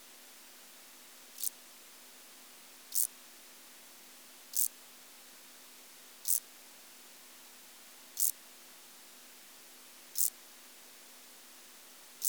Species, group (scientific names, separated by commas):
Chorthippus brunneus, Orthoptera